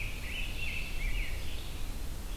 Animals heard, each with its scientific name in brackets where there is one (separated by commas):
Red-eyed Vireo (Vireo olivaceus), Rose-breasted Grosbeak (Pheucticus ludovicianus)